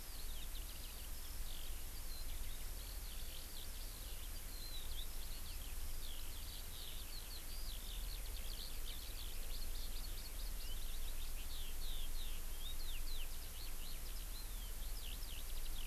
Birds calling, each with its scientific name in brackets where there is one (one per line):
Eurasian Skylark (Alauda arvensis)